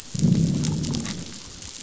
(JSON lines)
{"label": "biophony, growl", "recorder": "SoundTrap 500"}